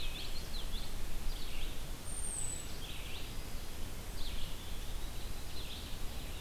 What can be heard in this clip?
Common Yellowthroat, Red-eyed Vireo, American Robin, Eastern Wood-Pewee